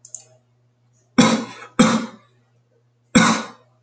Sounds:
Cough